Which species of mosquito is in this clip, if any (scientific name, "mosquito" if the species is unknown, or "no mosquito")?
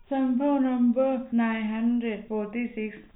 no mosquito